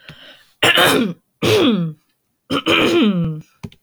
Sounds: Throat clearing